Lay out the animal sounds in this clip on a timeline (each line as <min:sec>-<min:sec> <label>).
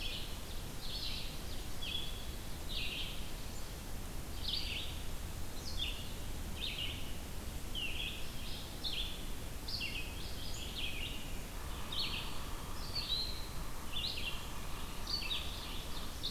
0:00.0-0:16.3 Red-eyed Vireo (Vireo olivaceus)
0:11.5-0:15.7 Yellow-bellied Sapsucker (Sphyrapicus varius)
0:14.9-0:16.3 Ovenbird (Seiurus aurocapilla)